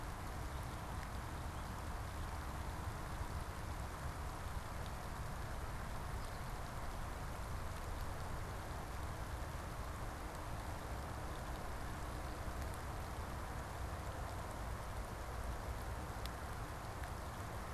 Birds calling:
American Goldfinch (Spinus tristis)

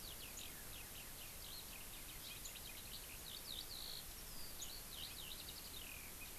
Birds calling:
Eurasian Skylark (Alauda arvensis)

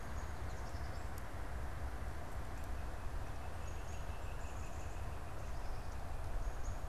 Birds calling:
Black-capped Chickadee (Poecile atricapillus), unidentified bird

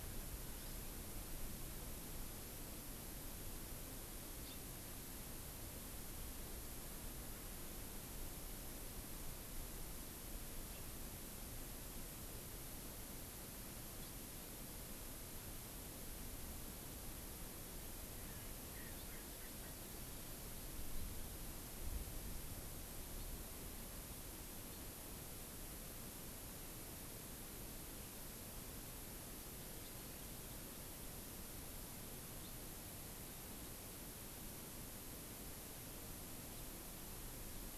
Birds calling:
Erckel's Francolin (Pternistis erckelii), Hawaii Amakihi (Chlorodrepanis virens)

